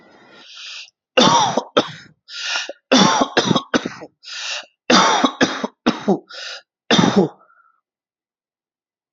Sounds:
Cough